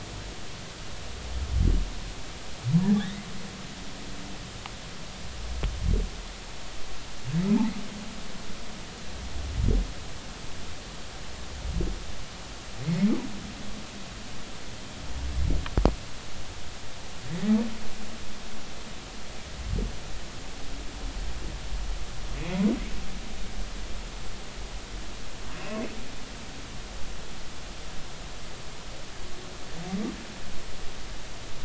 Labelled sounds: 2.9	3.3	humpback whale, 1.5 to 3.9 kHz
25.6	25.8	humpback whale, 2.4 to 2.8 kHz

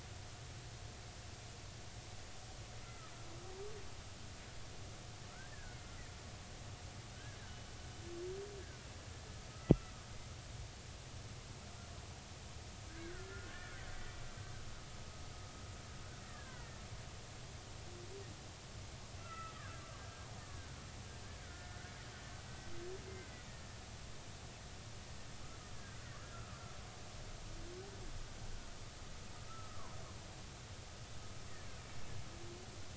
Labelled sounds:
2.8	3.1	killer whale, Bigg's (transient), 1.2 to 1.4 kHz
5.5	5.8	killer whale, Bigg's (transient), 1.4 to 1.9 kHz
12.9	14.2	killer whale, Bigg's (transient), 1.3 to 2.0 kHz
16.2	16.8	killer whale, Bigg's (transient), 1.4 to 2.1 kHz
19.2	19.8	killer whale, Bigg's (transient), 1.2 to 2.8 kHz
20.4	20.8	killer whale, Bigg's (transient), 1.4 to 1.9 kHz
21.4	21.8	killer whale, Bigg's (transient), 1.4 to 1.8 kHz
23.1	23.4	killer whale, Bigg's (transient), 1.9 to 2.1 kHz
26.0	26.6	killer whale, Bigg's (transient), 1.1 to 2.0 kHz
29.5	30.0	killer whale, Bigg's (transient), 0.93 to 1.4 kHz

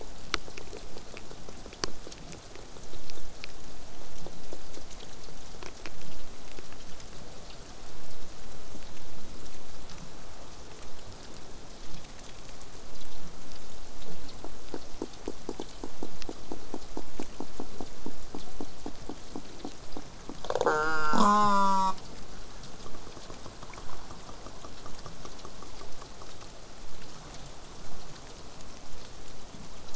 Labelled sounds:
20.6	21.9	killer whale, southern resident, J pod, call S04, 0.08 to 8.0 kHz

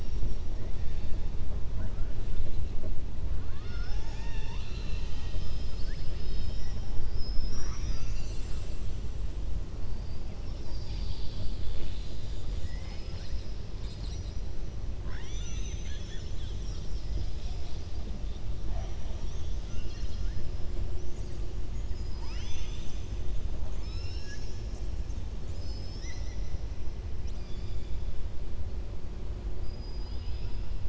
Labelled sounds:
21.6	23.1	killer whale, southern resident, 0.98 to 7.5 kHz
23.5	24.9	killer whale, southern resident, 0.87 to 7.8 kHz
29.6	30.7	killer whale, southern resident, 2.5 to 5.5 kHz

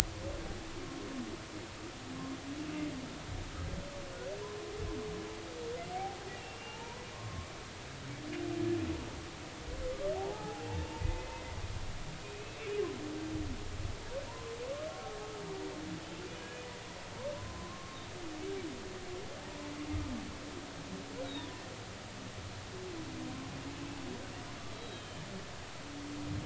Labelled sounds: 6.4	7.5	humpback whale, 0.83 to 2.9 kHz
10.1	11.4	humpback whale, 0.80 to 2.7 kHz
12.0	12.6	humpback whale, 2.0 to 2.7 kHz
14.3	14.6	humpback whale, 0.86 to 1.1 kHz
17.3	18.0	humpback whale, 0.93 to 1.1 kHz
21.2	21.6	humpback whale, 0.86 to 4.0 kHz
24.7	25.2	humpback whale, 3.0 to 4.0 kHz

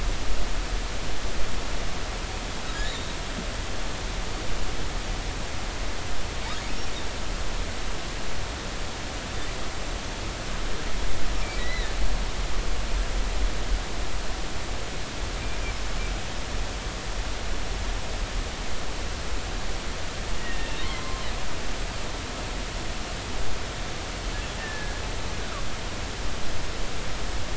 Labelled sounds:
2.8	3.2	humpback whale, 3.5 to 3.9 kHz
11.6	11.9	humpback whale, 1.7 to 4.2 kHz
20.4	21.2	humpback whale, 0.96 to 2.8 kHz
24.6	25.0	humpback whale, 1.6 to 1.9 kHz

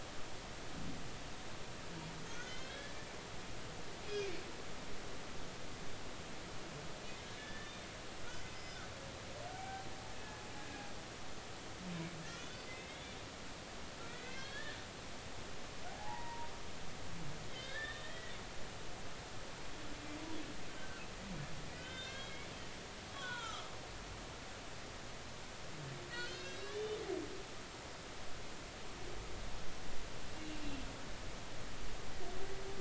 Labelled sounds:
2.2	2.9	humpback whale, 1.5 to 5.3 kHz
7.4	7.9	humpback whale, 1.7 to 3.7 kHz
8.5	9.9	humpback whale, 0.80 to 5.2 kHz
12.4	13.0	humpback whale, 2.0 to 3.8 kHz
14.1	14.8	humpback whale, 1.5 to 4.5 kHz
15.9	16.5	humpback whale, 0.80 to 2.0 kHz
17.5	18.3	humpback whale, 1.5 to 3.9 kHz
20.8	22.5	humpback whale, 1.3 to 3.9 kHz
23.2	23.7	humpback whale, 0.83 to 4.0 kHz
26.1	27.0	humpback whale, 1.4 to 4.0 kHz
30.3	30.6	humpback whale, 2.7 to 2.8 kHz

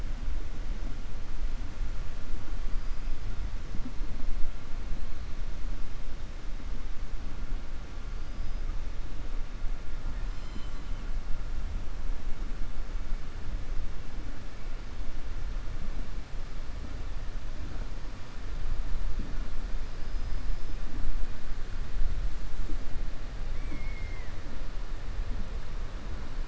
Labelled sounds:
8.2	8.6	killer whale, southern resident, 4.7 to 5.9 kHz
20.0	20.8	killer whale, southern resident, 4.5 to 6.1 kHz

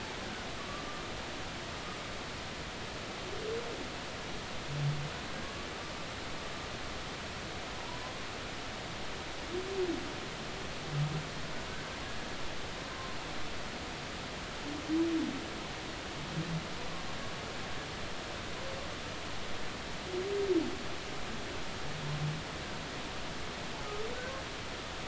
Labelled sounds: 7.9	8.1	humpback whale, 0.93 to 1.1 kHz

